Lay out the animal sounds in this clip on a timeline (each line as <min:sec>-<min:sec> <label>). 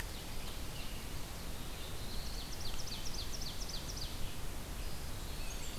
0:00.0-0:01.2 Ovenbird (Seiurus aurocapilla)
0:00.0-0:05.8 Red-eyed Vireo (Vireo olivaceus)
0:01.2-0:02.6 Black-throated Blue Warbler (Setophaga caerulescens)
0:01.9-0:04.2 Ovenbird (Seiurus aurocapilla)
0:04.6-0:05.8 Eastern Wood-Pewee (Contopus virens)
0:05.2-0:05.8 Blackburnian Warbler (Setophaga fusca)